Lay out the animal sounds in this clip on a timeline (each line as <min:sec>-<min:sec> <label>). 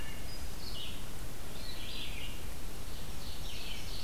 0:00.0-0:04.0 Red-eyed Vireo (Vireo olivaceus)
0:03.1-0:04.0 Ovenbird (Seiurus aurocapilla)